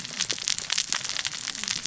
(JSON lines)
{"label": "biophony, cascading saw", "recorder": "SoundTrap 600 or HydroMoth"}